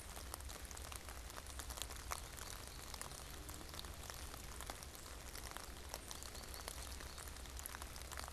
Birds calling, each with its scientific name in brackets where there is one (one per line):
American Goldfinch (Spinus tristis)